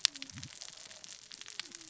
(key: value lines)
label: biophony, cascading saw
recorder: SoundTrap 600 or HydroMoth